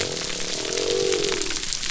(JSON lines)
{"label": "biophony", "recorder": "SoundTrap 300"}